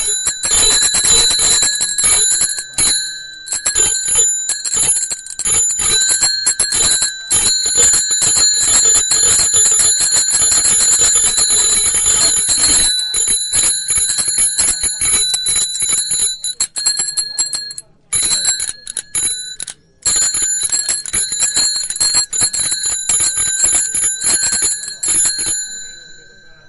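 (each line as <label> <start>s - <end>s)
A bicycle bell rings rapidly and repeatedly, creating a sharp, persistent dinging sound. 0.0s - 26.7s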